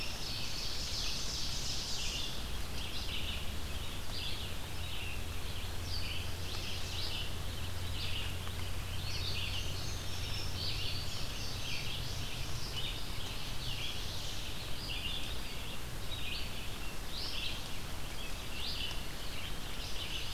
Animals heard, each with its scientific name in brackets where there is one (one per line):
Red-eyed Vireo (Vireo olivaceus)
Indigo Bunting (Passerina cyanea)
Ovenbird (Seiurus aurocapilla)